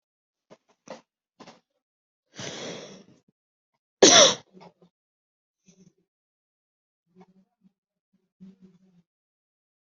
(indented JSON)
{
  "expert_labels": [
    {
      "quality": "good",
      "cough_type": "dry",
      "dyspnea": false,
      "wheezing": false,
      "stridor": false,
      "choking": false,
      "congestion": false,
      "nothing": true,
      "diagnosis": "healthy cough",
      "severity": "pseudocough/healthy cough"
    }
  ],
  "age": 20,
  "gender": "female",
  "respiratory_condition": false,
  "fever_muscle_pain": false,
  "status": "healthy"
}